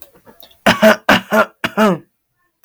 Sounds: Cough